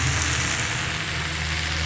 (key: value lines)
label: anthrophony, boat engine
recorder: SoundTrap 500